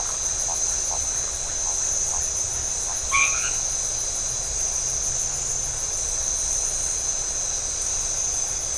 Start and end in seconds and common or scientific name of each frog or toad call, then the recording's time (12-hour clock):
0.0	0.2	Phyllomedusa distincta
3.0	3.6	white-edged tree frog
8:30pm